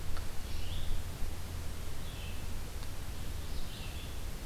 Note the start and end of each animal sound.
[0.00, 4.46] Red-eyed Vireo (Vireo olivaceus)

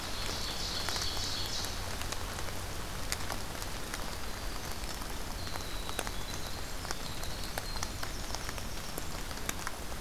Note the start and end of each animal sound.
[0.00, 1.75] Ovenbird (Seiurus aurocapilla)
[3.33, 9.10] Winter Wren (Troglodytes hiemalis)

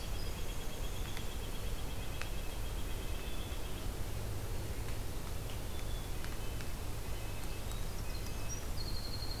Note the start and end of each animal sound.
[0.00, 1.27] Winter Wren (Troglodytes hiemalis)
[0.00, 3.91] White-breasted Nuthatch (Sitta carolinensis)
[1.97, 3.71] Red-breasted Nuthatch (Sitta canadensis)
[5.54, 6.68] Black-capped Chickadee (Poecile atricapillus)
[6.33, 8.58] Red-breasted Nuthatch (Sitta canadensis)
[7.17, 9.40] Winter Wren (Troglodytes hiemalis)

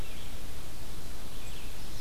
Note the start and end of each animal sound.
[0.00, 2.00] Red-eyed Vireo (Vireo olivaceus)

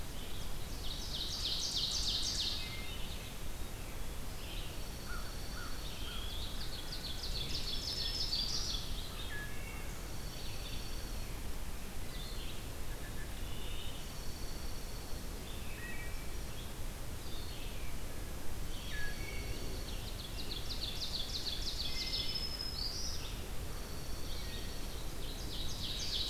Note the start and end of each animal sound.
[0.07, 26.30] Red-eyed Vireo (Vireo olivaceus)
[0.35, 2.85] Ovenbird (Seiurus aurocapilla)
[2.42, 3.33] Wood Thrush (Hylocichla mustelina)
[4.60, 6.15] Dark-eyed Junco (Junco hyemalis)
[4.97, 6.36] American Crow (Corvus brachyrhynchos)
[5.73, 6.63] Eastern Wood-Pewee (Contopus virens)
[6.37, 9.16] Ovenbird (Seiurus aurocapilla)
[7.43, 8.85] Black-throated Green Warbler (Setophaga virens)
[9.14, 9.94] Wood Thrush (Hylocichla mustelina)
[9.85, 11.34] Dark-eyed Junco (Junco hyemalis)
[12.83, 13.87] Wood Thrush (Hylocichla mustelina)
[13.79, 15.12] Dark-eyed Junco (Junco hyemalis)
[15.69, 16.46] Wood Thrush (Hylocichla mustelina)
[18.61, 20.10] Dark-eyed Junco (Junco hyemalis)
[18.79, 19.53] Wood Thrush (Hylocichla mustelina)
[19.73, 22.40] Ovenbird (Seiurus aurocapilla)
[21.77, 23.22] Black-throated Green Warbler (Setophaga virens)
[23.59, 25.07] Dark-eyed Junco (Junco hyemalis)
[24.27, 25.06] Wood Thrush (Hylocichla mustelina)
[25.06, 26.30] Ovenbird (Seiurus aurocapilla)

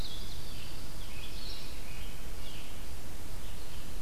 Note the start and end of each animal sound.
[0.00, 4.01] Blue-headed Vireo (Vireo solitarius)
[0.00, 4.01] Red-eyed Vireo (Vireo olivaceus)
[1.46, 2.70] Red-breasted Nuthatch (Sitta canadensis)

